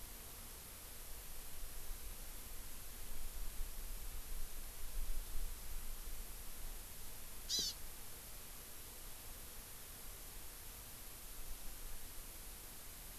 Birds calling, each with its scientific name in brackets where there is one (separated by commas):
Hawaii Amakihi (Chlorodrepanis virens)